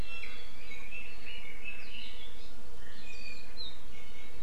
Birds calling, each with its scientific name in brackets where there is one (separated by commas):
Iiwi (Drepanis coccinea), Red-billed Leiothrix (Leiothrix lutea)